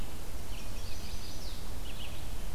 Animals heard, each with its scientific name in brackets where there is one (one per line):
Red-eyed Vireo (Vireo olivaceus)
Chestnut-sided Warbler (Setophaga pensylvanica)